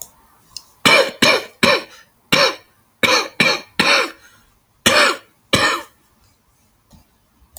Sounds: Cough